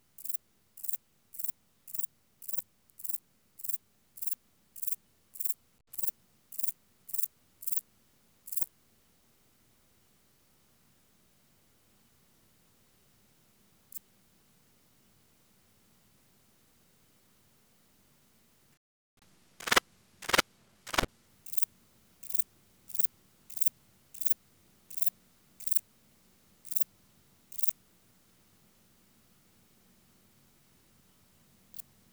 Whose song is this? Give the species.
Metrioptera brachyptera